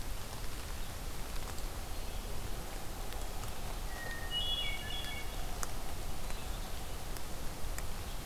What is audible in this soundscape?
Hermit Thrush